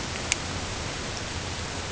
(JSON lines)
{"label": "ambient", "recorder": "HydroMoth"}